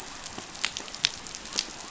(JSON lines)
{"label": "biophony", "recorder": "SoundTrap 500"}